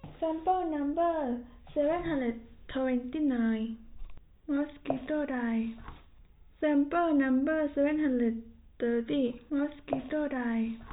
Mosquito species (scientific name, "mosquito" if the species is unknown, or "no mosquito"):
no mosquito